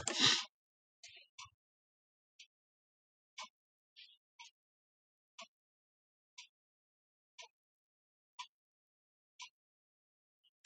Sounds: Throat clearing